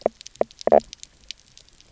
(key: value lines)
label: biophony, knock croak
recorder: SoundTrap 300